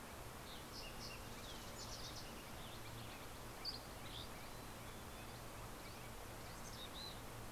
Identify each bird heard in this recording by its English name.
Fox Sparrow, Western Tanager, Dusky Flycatcher, Mountain Chickadee